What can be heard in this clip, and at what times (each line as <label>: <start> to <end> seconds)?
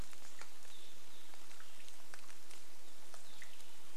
Evening Grosbeak call: 0 to 4 seconds
rain: 0 to 4 seconds